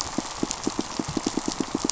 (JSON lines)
{"label": "biophony, pulse", "recorder": "SoundTrap 500"}